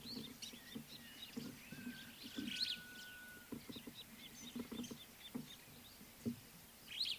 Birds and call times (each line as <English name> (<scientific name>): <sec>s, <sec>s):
Superb Starling (Lamprotornis superbus): 2.6s